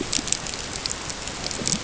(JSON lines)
{"label": "ambient", "recorder": "HydroMoth"}